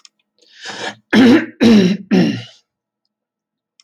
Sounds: Throat clearing